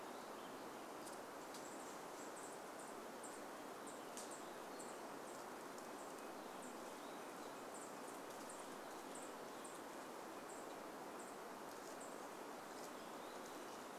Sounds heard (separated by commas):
unidentified bird chip note, Red-breasted Nuthatch song, unidentified sound, Chestnut-backed Chickadee call